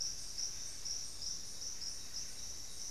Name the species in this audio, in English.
Buff-breasted Wren, Cinnamon-rumped Foliage-gleaner